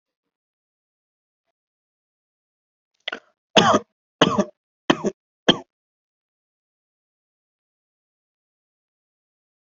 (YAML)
expert_labels:
- quality: good
  cough_type: unknown
  dyspnea: false
  wheezing: false
  stridor: false
  choking: false
  congestion: false
  nothing: true
  diagnosis: obstructive lung disease
  severity: mild
age: 27
gender: male
respiratory_condition: false
fever_muscle_pain: false
status: COVID-19